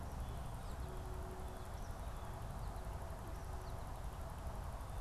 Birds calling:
Blue Jay (Cyanocitta cristata), Eastern Kingbird (Tyrannus tyrannus), American Goldfinch (Spinus tristis)

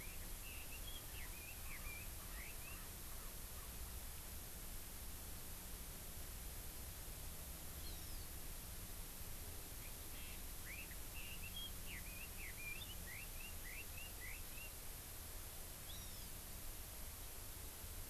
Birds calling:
Erckel's Francolin (Pternistis erckelii), Red-billed Leiothrix (Leiothrix lutea), Hawaii Amakihi (Chlorodrepanis virens)

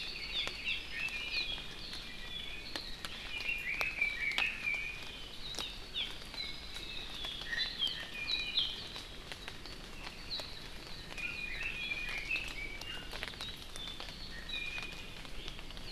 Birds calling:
Apapane (Himatione sanguinea), Hawaii Amakihi (Chlorodrepanis virens), Red-billed Leiothrix (Leiothrix lutea), Hawaii Creeper (Loxops mana), Iiwi (Drepanis coccinea)

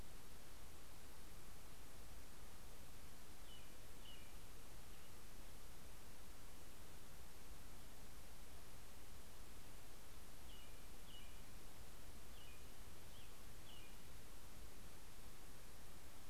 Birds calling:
American Robin (Turdus migratorius)

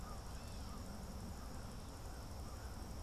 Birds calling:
American Crow (Corvus brachyrhynchos), Cedar Waxwing (Bombycilla cedrorum)

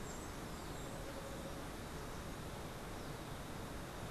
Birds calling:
Steely-vented Hummingbird (Saucerottia saucerottei)

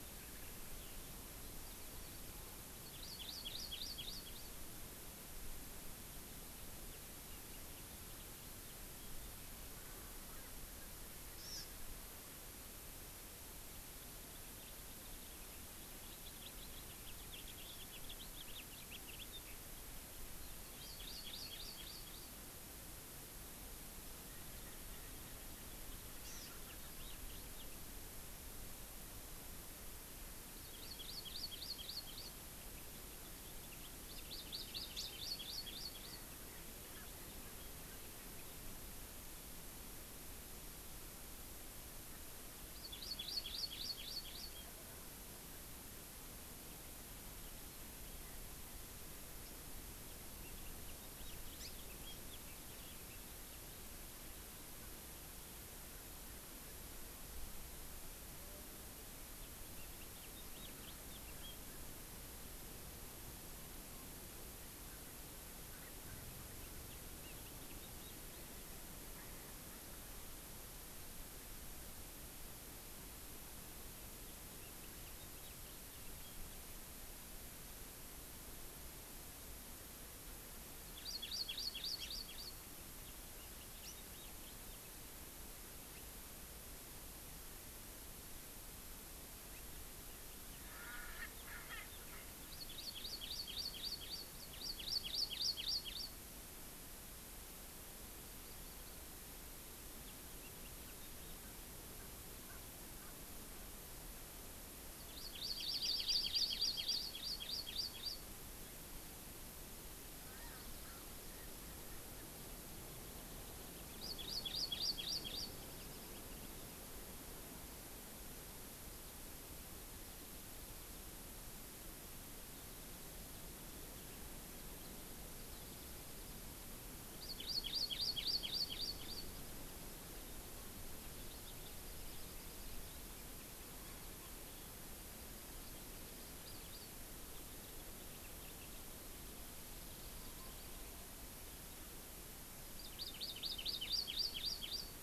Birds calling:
Erckel's Francolin (Pternistis erckelii), House Finch (Haemorhous mexicanus), Hawaii Amakihi (Chlorodrepanis virens)

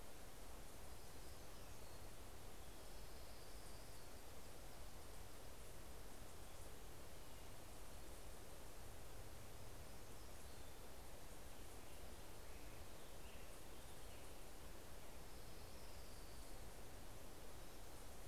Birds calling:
Hermit Warbler (Setophaga occidentalis), Orange-crowned Warbler (Leiothlypis celata), Black-headed Grosbeak (Pheucticus melanocephalus)

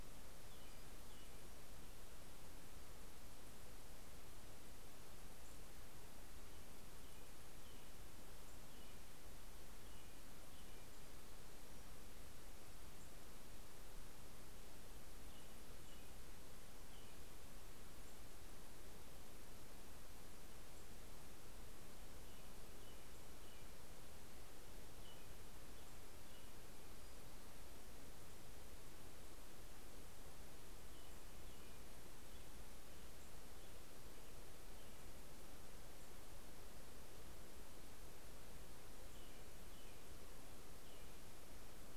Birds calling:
American Robin (Turdus migratorius)

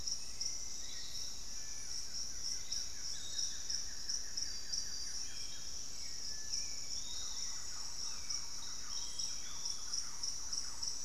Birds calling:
Thrush-like Wren (Campylorhynchus turdinus), Buff-throated Woodcreeper (Xiphorhynchus guttatus), Hauxwell's Thrush (Turdus hauxwelli), Long-winged Antwren (Myrmotherula longipennis), Piratic Flycatcher (Legatus leucophaius)

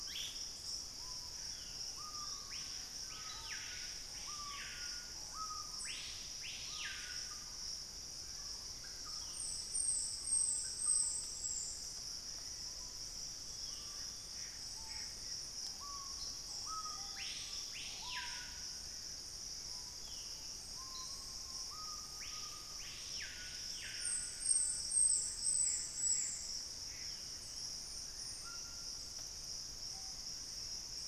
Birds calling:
Thrush-like Wren (Campylorhynchus turdinus), Gray Antbird (Cercomacra cinerascens), White-throated Toucan (Ramphastos tucanus), Screaming Piha (Lipaugus vociferans), unidentified bird, Black-spotted Bare-eye (Phlegopsis nigromaculata)

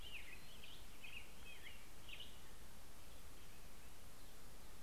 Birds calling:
Black-headed Grosbeak (Pheucticus melanocephalus)

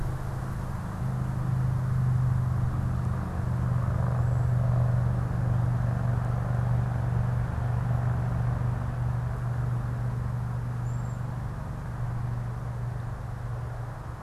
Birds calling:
Cedar Waxwing (Bombycilla cedrorum)

